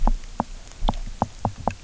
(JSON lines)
{"label": "biophony, knock", "recorder": "SoundTrap 300"}